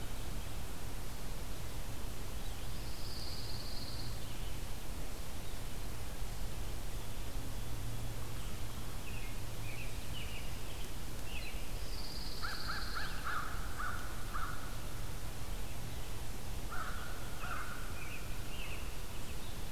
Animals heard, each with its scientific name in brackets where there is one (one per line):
Pine Warbler (Setophaga pinus)
American Robin (Turdus migratorius)
American Crow (Corvus brachyrhynchos)